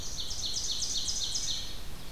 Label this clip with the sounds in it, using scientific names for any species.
Seiurus aurocapilla, Vireo olivaceus